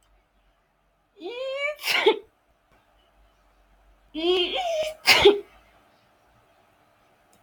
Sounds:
Sneeze